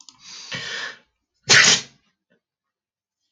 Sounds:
Sneeze